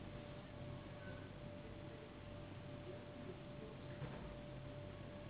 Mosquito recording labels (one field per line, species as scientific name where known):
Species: Anopheles gambiae s.s.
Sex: female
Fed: unfed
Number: one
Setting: insect culture